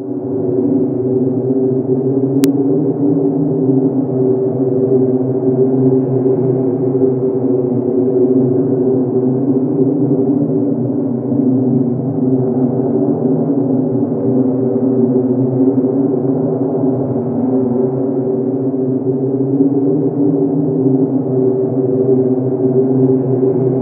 Is the noise constant?
yes